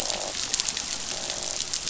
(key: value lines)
label: biophony, croak
recorder: SoundTrap 500